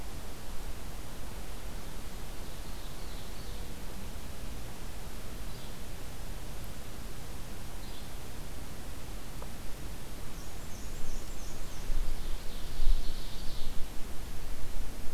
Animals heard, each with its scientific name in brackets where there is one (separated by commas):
Yellow-bellied Flycatcher (Empidonax flaviventris), Black-and-white Warbler (Mniotilta varia), Ovenbird (Seiurus aurocapilla)